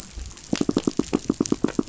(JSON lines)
{"label": "biophony, knock", "recorder": "SoundTrap 500"}